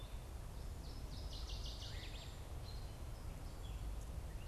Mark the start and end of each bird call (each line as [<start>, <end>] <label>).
[0.00, 4.47] American Robin (Turdus migratorius)
[0.00, 4.47] Black-capped Chickadee (Poecile atricapillus)
[0.51, 2.51] Northern Waterthrush (Parkesia noveboracensis)
[1.81, 4.47] Veery (Catharus fuscescens)